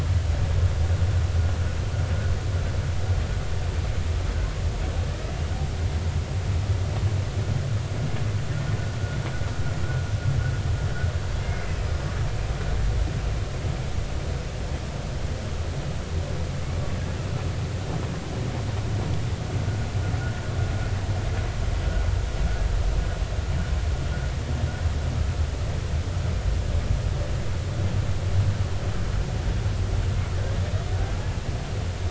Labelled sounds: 11.4	11.7	killer whale, Bigg's (transient), 2.0 to 2.2 kHz

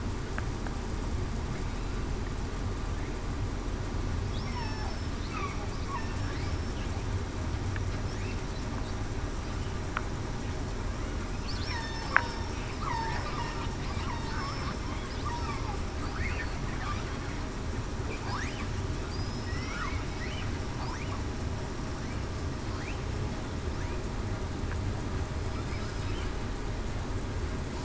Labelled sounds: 4.4	4.9	killer whale, southern resident, 1.7 to 5.6 kHz
6.4	6.7	killer whale, southern resident, 5.3 to 5.4 kHz
11.7	12.4	killer whale, southern resident, 1.8 to 5.5 kHz
12.8	13.2	killer whale, southern resident, 0.82 to 1.0 kHz
14.4	14.7	killer whale, southern resident, 5.27 to 5.34 kHz
19.1	19.7	killer whale, southern resident, 4.7 to 5.4 kHz

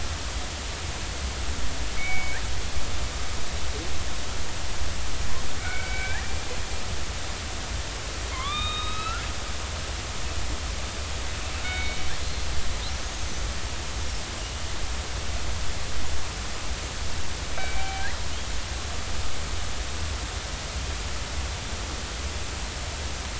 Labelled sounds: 2.0	2.4	killer whale, northern resident, 2.1 to 2.4 kHz
5.6	6.3	killer whale, northern resident, 1.3 to 2.4 kHz
8.3	9.2	killer whale, northern resident, 0.96 to 4.0 kHz
11.6	12.5	killer whale, northern resident, 1.3 to 4.3 kHz
13.0	13.3	killer whale, northern resident, 6.3 to 6.7 kHz
17.5	18.1	killer whale, northern resident, 0.80 to 2.4 kHz

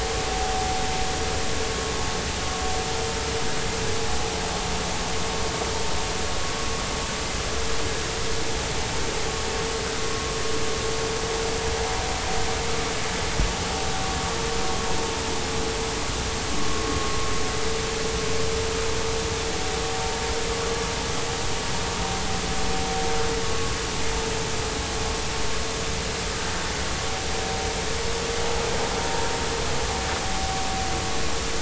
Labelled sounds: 23.5	23.7	vessel noise, 1.06 to 1.12 kHz

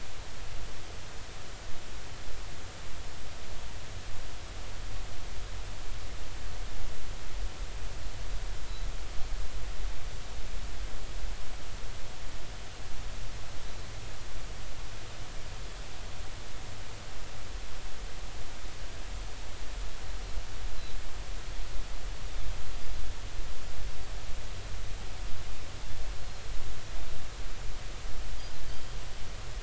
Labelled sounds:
28.7	29.0	Pacific white-sided dolphin, 3.0 to 3.2 kHz

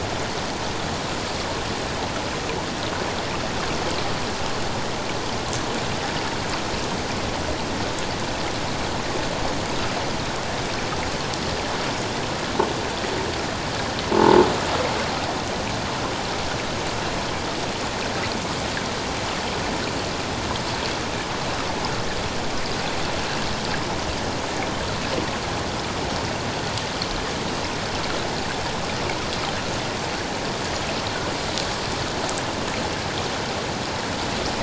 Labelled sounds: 14.1	14.5	croaking sound likely from a nearby submerged object, 0.81 to 0.97 kHz

